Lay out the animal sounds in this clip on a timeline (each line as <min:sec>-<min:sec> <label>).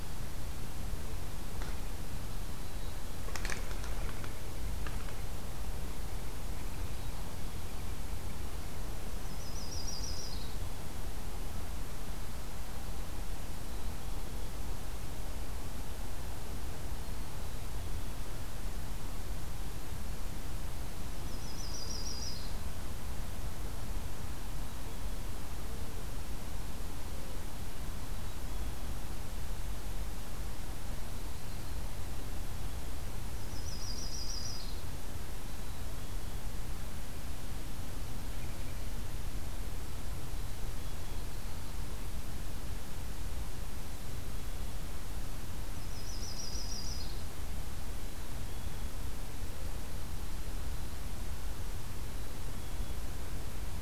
0:02.5-0:03.2 Black-capped Chickadee (Poecile atricapillus)
0:06.6-0:07.6 Black-capped Chickadee (Poecile atricapillus)
0:09.1-0:10.5 Yellow-rumped Warbler (Setophaga coronata)
0:10.2-0:11.3 Black-capped Chickadee (Poecile atricapillus)
0:13.6-0:14.5 Black-capped Chickadee (Poecile atricapillus)
0:16.9-0:17.9 Black-capped Chickadee (Poecile atricapillus)
0:21.2-0:22.6 Yellow-rumped Warbler (Setophaga coronata)
0:24.4-0:25.4 Black-capped Chickadee (Poecile atricapillus)
0:27.9-0:28.9 Black-capped Chickadee (Poecile atricapillus)
0:30.9-0:31.8 Yellow-rumped Warbler (Setophaga coronata)
0:33.3-0:34.9 Yellow-rumped Warbler (Setophaga coronata)
0:35.5-0:36.4 Black-capped Chickadee (Poecile atricapillus)
0:40.2-0:41.4 Black-capped Chickadee (Poecile atricapillus)
0:40.6-0:41.9 Yellow-rumped Warbler (Setophaga coronata)
0:45.8-0:47.3 Yellow-rumped Warbler (Setophaga coronata)
0:47.9-0:49.0 Black-capped Chickadee (Poecile atricapillus)
0:52.0-0:53.0 Black-capped Chickadee (Poecile atricapillus)